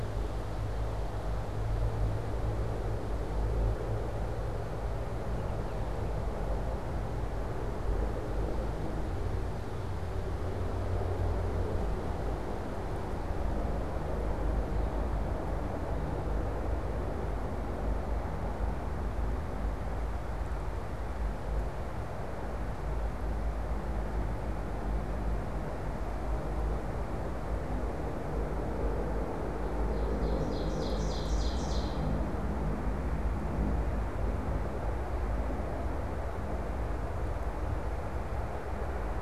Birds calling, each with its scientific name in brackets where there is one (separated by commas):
Ovenbird (Seiurus aurocapilla)